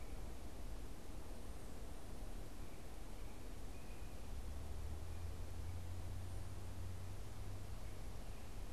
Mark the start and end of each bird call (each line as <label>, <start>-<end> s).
unidentified bird, 2.5-4.2 s